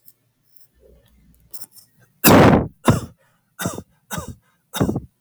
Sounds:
Cough